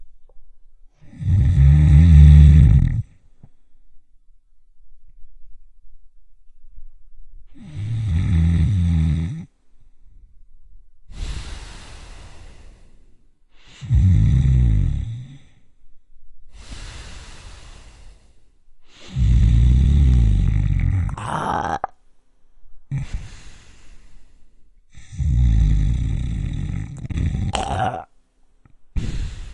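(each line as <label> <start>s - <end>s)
A person is snoring through the nose. 0.0s - 3.6s
Irregular nasal snores vibrate and occasionally pause before resuming with a hoarse, throaty sound. 7.4s - 29.5s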